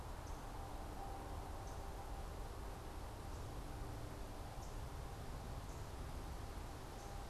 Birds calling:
unidentified bird

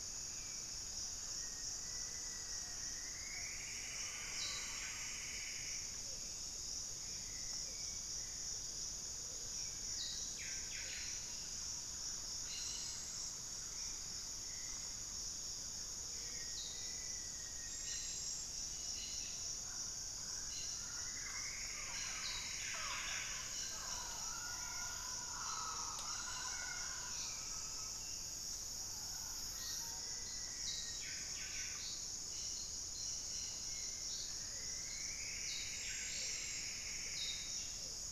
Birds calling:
Black-faced Antthrush (Formicarius analis), Wing-barred Piprites (Piprites chloris), Ruddy Quail-Dove (Geotrygon montana), Buff-breasted Wren (Cantorchilus leucotis), Hauxwell's Thrush (Turdus hauxwelli), Mealy Parrot (Amazona farinosa), Plumbeous Antbird (Myrmelastes hyperythrus), Thrush-like Wren (Campylorhynchus turdinus), Cobalt-winged Parakeet (Brotogeris cyanoptera)

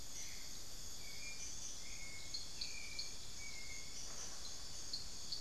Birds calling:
unidentified bird, Hauxwell's Thrush (Turdus hauxwelli)

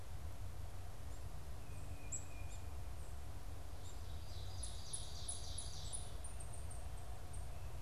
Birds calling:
Ovenbird (Seiurus aurocapilla), Black-capped Chickadee (Poecile atricapillus), unidentified bird, Tufted Titmouse (Baeolophus bicolor)

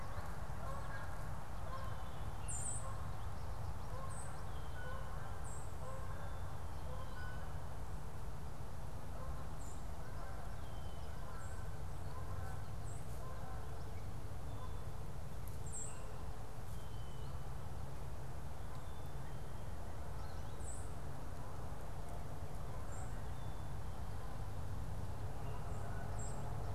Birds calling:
White-throated Sparrow (Zonotrichia albicollis), Canada Goose (Branta canadensis)

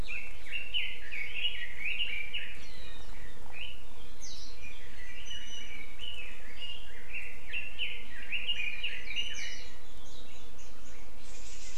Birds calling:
Iiwi (Drepanis coccinea), Red-billed Leiothrix (Leiothrix lutea)

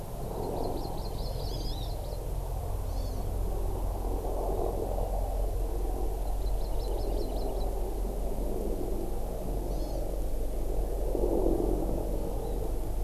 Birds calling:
Hawaii Amakihi (Chlorodrepanis virens)

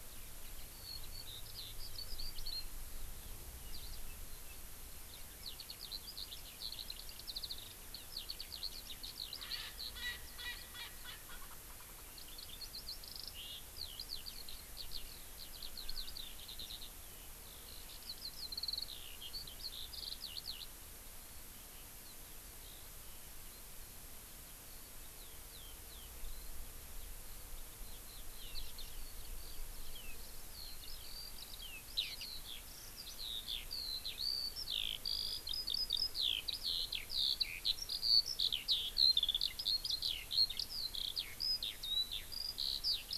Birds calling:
Eurasian Skylark (Alauda arvensis), Erckel's Francolin (Pternistis erckelii)

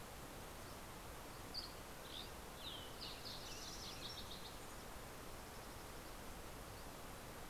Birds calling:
Western Tanager (Piranga ludoviciana), Dusky Flycatcher (Empidonax oberholseri), Fox Sparrow (Passerella iliaca)

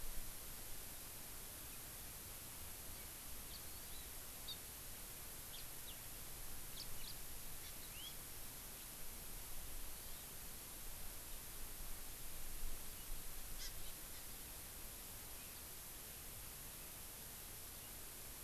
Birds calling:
House Finch (Haemorhous mexicanus), Hawaii Amakihi (Chlorodrepanis virens)

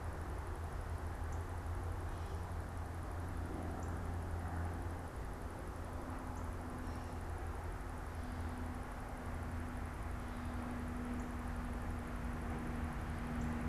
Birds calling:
Northern Cardinal (Cardinalis cardinalis)

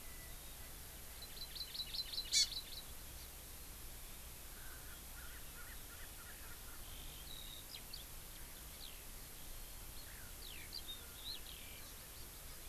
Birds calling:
Hawaii Amakihi (Chlorodrepanis virens), Eurasian Skylark (Alauda arvensis), Erckel's Francolin (Pternistis erckelii)

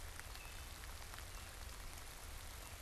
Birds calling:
Wood Thrush (Hylocichla mustelina)

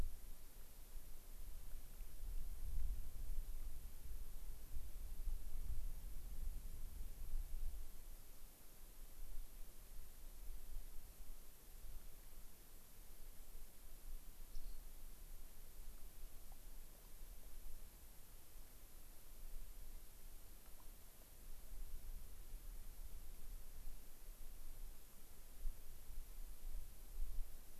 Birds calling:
Rock Wren (Salpinctes obsoletus)

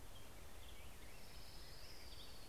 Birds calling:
Orange-crowned Warbler (Leiothlypis celata), Black-headed Grosbeak (Pheucticus melanocephalus)

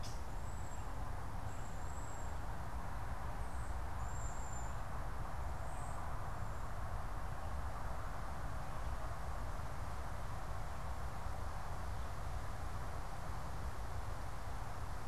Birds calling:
Cedar Waxwing (Bombycilla cedrorum)

